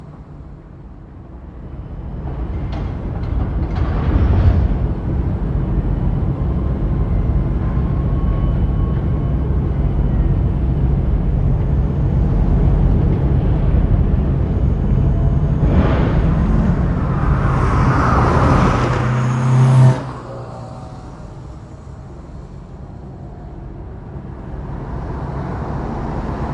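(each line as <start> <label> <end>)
16.9 A vehicle passes by loudly. 20.3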